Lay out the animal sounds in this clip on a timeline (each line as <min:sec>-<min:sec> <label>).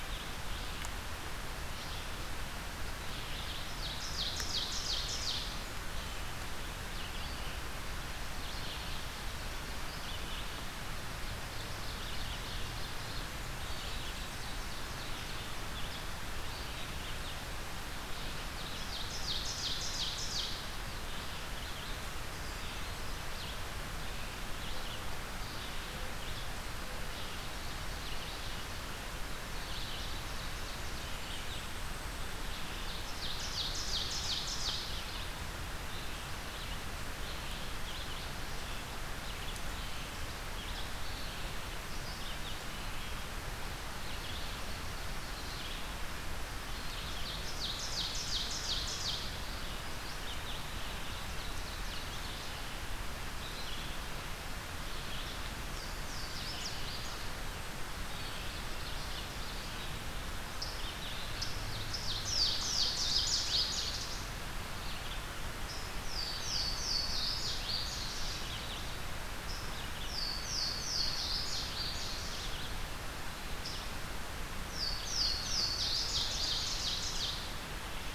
0:00.0-0:07.4 Red-eyed Vireo (Vireo olivaceus)
0:03.4-0:05.8 Ovenbird (Seiurus aurocapilla)
0:08.1-1:05.4 Red-eyed Vireo (Vireo olivaceus)
0:11.3-0:13.3 Ovenbird (Seiurus aurocapilla)
0:13.7-0:15.8 Ovenbird (Seiurus aurocapilla)
0:18.5-0:20.7 Ovenbird (Seiurus aurocapilla)
0:32.6-0:35.0 Ovenbird (Seiurus aurocapilla)
0:46.8-0:49.5 Ovenbird (Seiurus aurocapilla)
0:51.3-0:52.7 Ovenbird (Seiurus aurocapilla)
0:55.5-0:57.3 Louisiana Waterthrush (Parkesia motacilla)
0:58.3-1:00.2 Ovenbird (Seiurus aurocapilla)
1:01.6-1:04.2 Ovenbird (Seiurus aurocapilla)
1:02.1-1:03.8 Louisiana Waterthrush (Parkesia motacilla)
1:05.7-1:08.1 Louisiana Waterthrush (Parkesia motacilla)
1:06.1-1:18.1 Red-eyed Vireo (Vireo olivaceus)
1:09.8-1:12.4 Louisiana Waterthrush (Parkesia motacilla)
1:14.5-1:16.4 Louisiana Waterthrush (Parkesia motacilla)
1:15.5-1:17.7 Ovenbird (Seiurus aurocapilla)